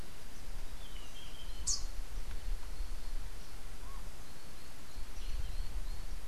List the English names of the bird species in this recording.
Rufous-capped Warbler